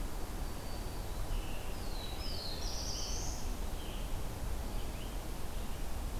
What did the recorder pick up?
Black-throated Green Warbler, Scarlet Tanager, Black-throated Blue Warbler